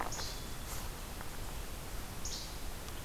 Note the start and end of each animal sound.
[0.02, 0.36] Least Flycatcher (Empidonax minimus)
[2.21, 2.50] Least Flycatcher (Empidonax minimus)

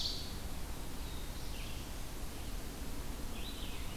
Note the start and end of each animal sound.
[0.00, 0.51] Ovenbird (Seiurus aurocapilla)
[0.00, 3.96] Red-eyed Vireo (Vireo olivaceus)
[0.67, 2.23] Black-throated Blue Warbler (Setophaga caerulescens)

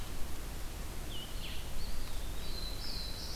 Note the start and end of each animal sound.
[0.00, 1.65] Red-eyed Vireo (Vireo olivaceus)
[1.59, 3.35] Black-throated Blue Warbler (Setophaga caerulescens)
[1.60, 2.90] Eastern Wood-Pewee (Contopus virens)

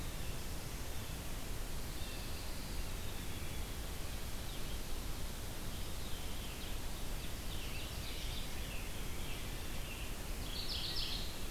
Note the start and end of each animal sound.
[1.55, 3.00] Pine Warbler (Setophaga pinus)
[2.85, 3.83] Black-capped Chickadee (Poecile atricapillus)
[5.39, 6.87] Veery (Catharus fuscescens)
[7.07, 9.34] Scarlet Tanager (Piranga olivacea)
[7.16, 8.56] Ovenbird (Seiurus aurocapilla)
[10.33, 11.51] Mourning Warbler (Geothlypis philadelphia)

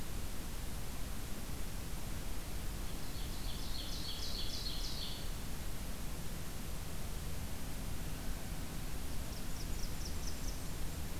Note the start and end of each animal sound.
[2.85, 5.21] Ovenbird (Seiurus aurocapilla)
[9.03, 10.95] Blackburnian Warbler (Setophaga fusca)

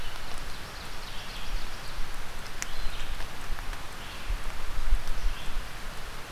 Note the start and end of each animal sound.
[0.00, 2.02] Ovenbird (Seiurus aurocapilla)
[0.00, 6.31] Red-eyed Vireo (Vireo olivaceus)

